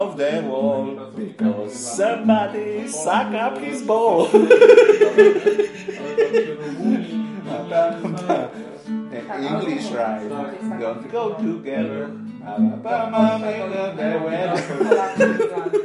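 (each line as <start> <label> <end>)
0.0 Men singing rhythmically indoors. 4.3
0.9 Guitar playing quietly with a rhythmic pattern indoors. 15.8
4.4 Men laughing loudly indoors, fading away. 7.5
7.5 Multiple people are talking simultaneously while one person sings along to the rhythm of a guitar. 14.8
14.8 Men laughing hysterically. 15.8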